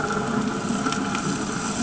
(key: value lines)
label: anthrophony, boat engine
recorder: HydroMoth